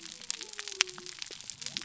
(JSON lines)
{"label": "biophony", "recorder": "SoundTrap 300"}